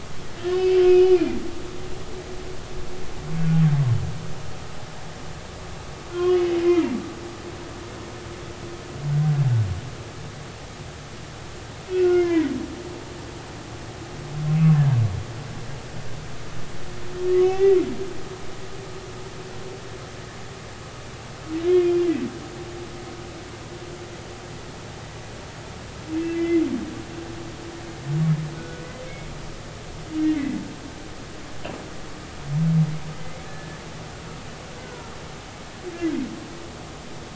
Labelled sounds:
0.5	1.2	humpback whale, 2.4 to 3.0 kHz
6.1	6.9	humpback whale, 1.9 to 3.3 kHz
11.9	12.5	humpback whale, 1.4 to 2.8 kHz
17.4	17.8	humpback whale, 0.80 to 2.8 kHz
21.7	22.0	humpback whale, 2.4 to 2.6 kHz
26.3	26.6	humpback whale, 1.9 to 2.1 kHz
28.6	28.8	humpback whale, 1.3 to 1.5 kHz
30.3	30.6	humpback whale, 1.9 to 2.2 kHz
33.2	33.8	humpback whale, 1.6 to 2.3 kHz
34.8	35.1	humpback whale, 1.3 to 1.6 kHz

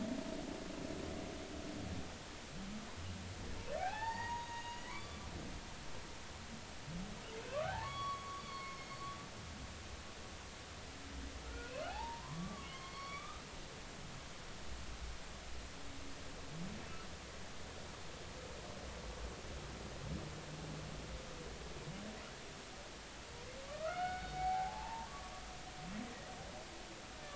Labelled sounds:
3.8	5.3	humpback whale, 0.80 to 6.7 kHz
7.5	8.8	humpback whale, 0.80 to 4.5 kHz
9.4	9.6	humpback whale, 3.2 to 3.6 kHz
11.4	13.4	humpback whale, 0.80 to 4.6 kHz
23.6	25.3	humpback whale, 0.80 to 2.3 kHz

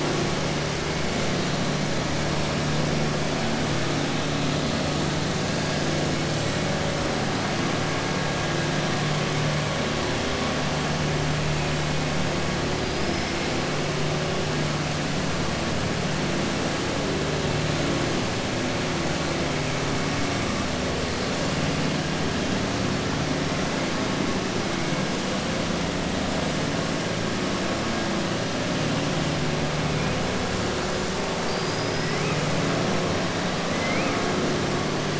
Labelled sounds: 12.9	13.4	killer whale, southern resident, 4.7 to 5.4 kHz
33.7	34.2	killer whale, southern resident, 1.3 to 3.1 kHz

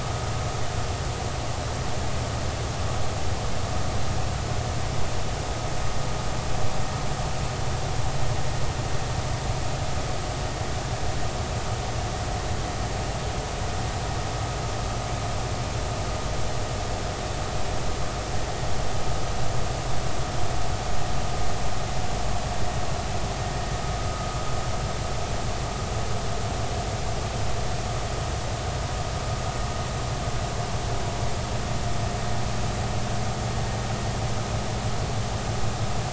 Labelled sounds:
24.0	24.3	vessel noise, 1.2 to 1.3 kHz

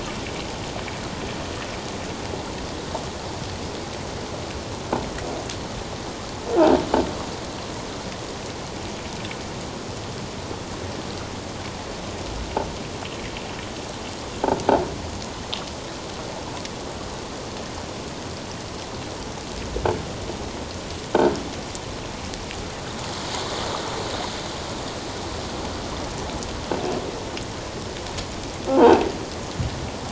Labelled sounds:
28.7	29.1	croaking sound likely from a nearby submerged object, 0.78 to 2.8 kHz

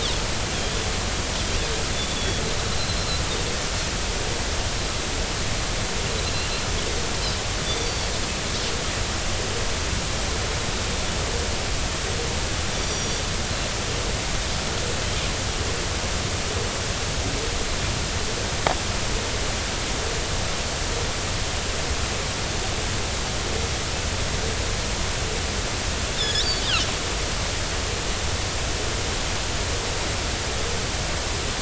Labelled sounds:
2.1	2.4	Pacific white-sided dolphin, 3.3 to 3.5 kHz
7.8	8.1	Pacific white-sided dolphin, 4.4 to 4.6 kHz
12.7	13.2	Pacific white-sided dolphin, 3.3 to 6.0 kHz
26.2	26.5	Pacific white-sided dolphin, 3.3 to 5.8 kHz

